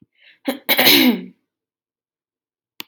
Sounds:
Throat clearing